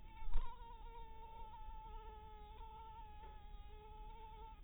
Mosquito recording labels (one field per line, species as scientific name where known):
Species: mosquito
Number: one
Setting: cup